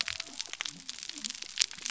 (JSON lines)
{"label": "biophony", "recorder": "SoundTrap 300"}